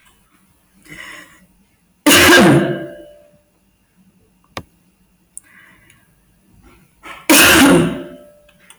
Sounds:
Cough